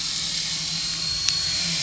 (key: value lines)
label: anthrophony, boat engine
recorder: SoundTrap 500